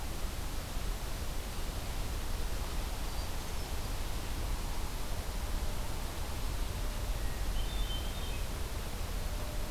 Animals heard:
Hermit Thrush (Catharus guttatus)

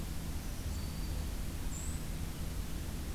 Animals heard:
Black-throated Green Warbler (Setophaga virens)

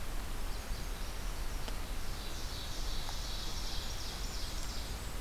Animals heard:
Blackburnian Warbler (Setophaga fusca), Ovenbird (Seiurus aurocapilla)

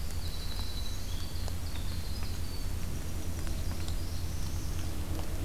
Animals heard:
Northern Parula (Setophaga americana), Winter Wren (Troglodytes hiemalis)

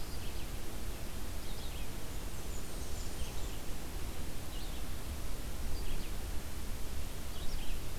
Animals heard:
Red-eyed Vireo (Vireo olivaceus), Blackburnian Warbler (Setophaga fusca)

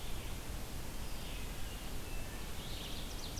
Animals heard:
Red-eyed Vireo (Vireo olivaceus), American Crow (Corvus brachyrhynchos), Wood Thrush (Hylocichla mustelina)

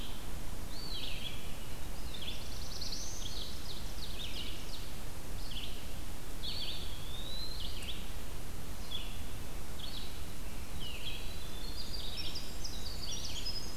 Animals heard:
Eastern Wood-Pewee (Contopus virens), Red-eyed Vireo (Vireo olivaceus), Winter Wren (Troglodytes hiemalis), Ovenbird (Seiurus aurocapilla), Black-throated Blue Warbler (Setophaga caerulescens)

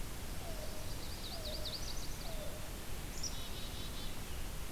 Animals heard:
Black-capped Chickadee (Poecile atricapillus), Chestnut-sided Warbler (Setophaga pensylvanica), Yellow-billed Cuckoo (Coccyzus americanus), Scarlet Tanager (Piranga olivacea)

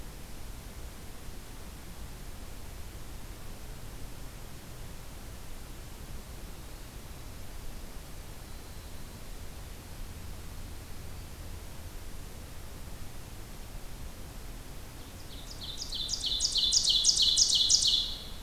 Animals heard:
Winter Wren (Troglodytes hiemalis), Ovenbird (Seiurus aurocapilla)

